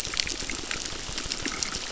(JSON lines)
{"label": "biophony, crackle", "recorder": "SoundTrap 600"}